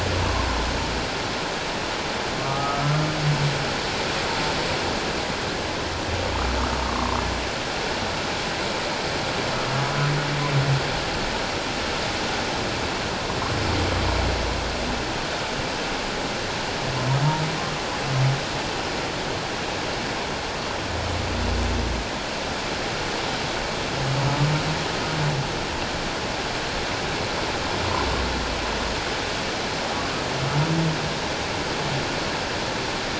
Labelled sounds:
2.4	3.1	humpback whale, 1.1 to 1.4 kHz
6.9	7.2	humpback whale, 0.94 to 1.2 kHz

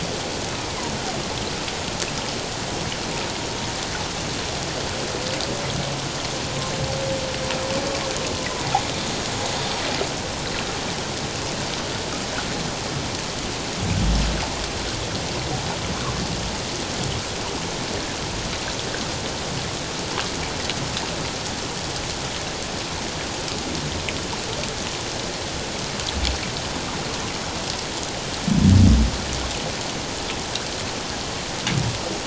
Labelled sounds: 0.5	0.9	humpback whale, 1.9 to 2.6 kHz

